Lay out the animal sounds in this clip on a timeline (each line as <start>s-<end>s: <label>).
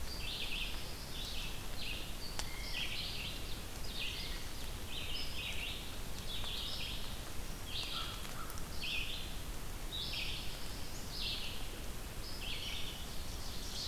0.0s-13.9s: Red-eyed Vireo (Vireo olivaceus)
0.1s-1.3s: Black-throated Blue Warbler (Setophaga caerulescens)
7.8s-8.7s: American Crow (Corvus brachyrhynchos)
9.8s-11.3s: Black-throated Blue Warbler (Setophaga caerulescens)
12.8s-13.9s: Ovenbird (Seiurus aurocapilla)